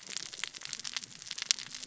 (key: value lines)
label: biophony, cascading saw
recorder: SoundTrap 600 or HydroMoth